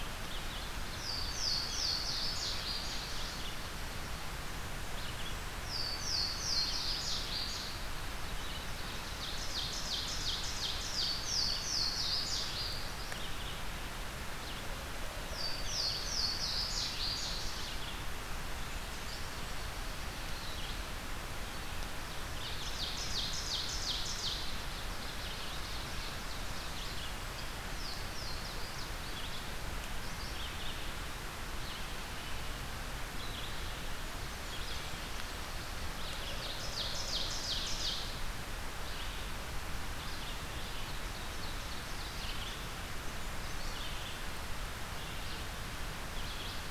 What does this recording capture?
Red-eyed Vireo, Louisiana Waterthrush, Ovenbird